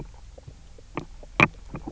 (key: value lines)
label: biophony, knock croak
recorder: SoundTrap 300